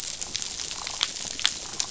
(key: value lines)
label: biophony, damselfish
recorder: SoundTrap 500